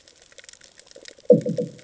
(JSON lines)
{"label": "anthrophony, bomb", "recorder": "HydroMoth"}